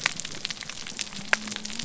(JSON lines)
{"label": "biophony", "recorder": "SoundTrap 300"}